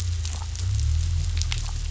{"label": "anthrophony, boat engine", "recorder": "SoundTrap 500"}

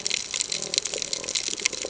{"label": "ambient", "recorder": "HydroMoth"}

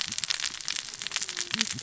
{"label": "biophony, cascading saw", "recorder": "SoundTrap 600 or HydroMoth"}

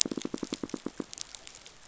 {"label": "biophony, pulse", "recorder": "SoundTrap 500"}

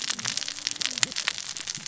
{"label": "biophony, cascading saw", "recorder": "SoundTrap 600 or HydroMoth"}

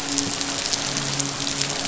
{"label": "biophony, midshipman", "recorder": "SoundTrap 500"}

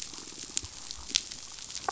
{"label": "biophony, damselfish", "recorder": "SoundTrap 500"}
{"label": "biophony", "recorder": "SoundTrap 500"}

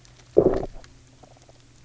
{"label": "biophony, low growl", "recorder": "SoundTrap 300"}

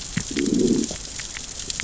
{"label": "biophony, growl", "recorder": "SoundTrap 600 or HydroMoth"}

